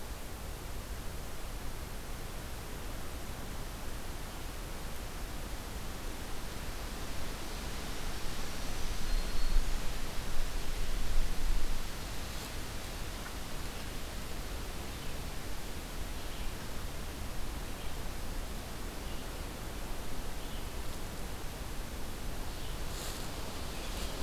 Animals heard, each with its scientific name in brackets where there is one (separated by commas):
Black-throated Green Warbler (Setophaga virens), Red-eyed Vireo (Vireo olivaceus)